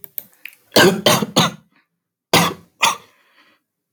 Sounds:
Cough